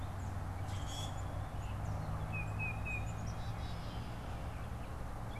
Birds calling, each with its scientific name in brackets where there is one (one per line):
Common Grackle (Quiscalus quiscula)
Tufted Titmouse (Baeolophus bicolor)
Gray Catbird (Dumetella carolinensis)
Black-capped Chickadee (Poecile atricapillus)